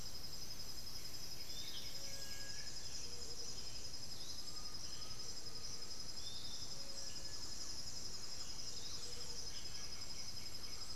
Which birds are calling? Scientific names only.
Pachyramphus polychopterus, Legatus leucophaius, Crypturellus soui, Crypturellus undulatus, Campylorhynchus turdinus